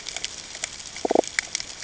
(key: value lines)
label: ambient
recorder: HydroMoth